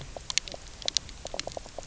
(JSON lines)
{"label": "biophony, knock croak", "recorder": "SoundTrap 300"}